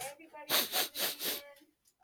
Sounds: Sniff